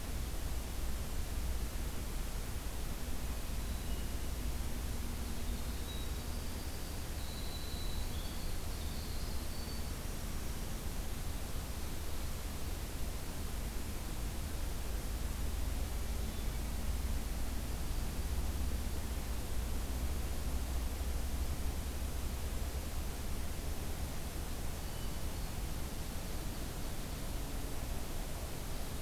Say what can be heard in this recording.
Hermit Thrush, Winter Wren